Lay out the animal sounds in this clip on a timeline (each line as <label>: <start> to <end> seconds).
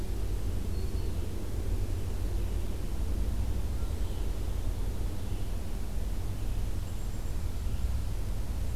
Black-throated Green Warbler (Setophaga virens): 0.5 to 1.2 seconds
Red-eyed Vireo (Vireo olivaceus): 3.8 to 5.6 seconds
Black-capped Chickadee (Poecile atricapillus): 6.7 to 7.8 seconds